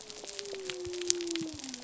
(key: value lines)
label: biophony
recorder: SoundTrap 300